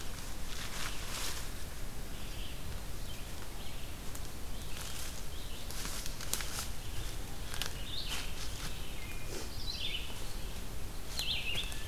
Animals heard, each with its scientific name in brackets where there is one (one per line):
Wood Thrush (Hylocichla mustelina)
Red-eyed Vireo (Vireo olivaceus)